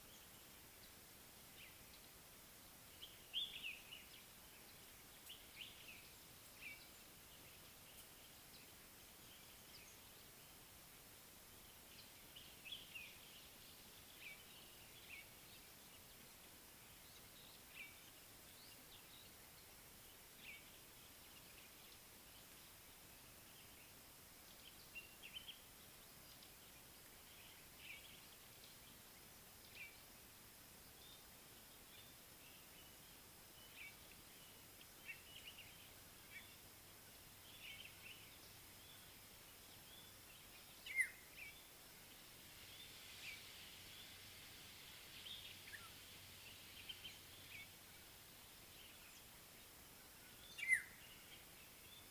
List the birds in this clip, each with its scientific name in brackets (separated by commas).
Common Bulbul (Pycnonotus barbatus), African Black-headed Oriole (Oriolus larvatus), Violet-backed Starling (Cinnyricinclus leucogaster)